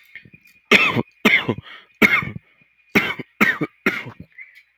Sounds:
Cough